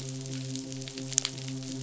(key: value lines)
label: biophony, midshipman
recorder: SoundTrap 500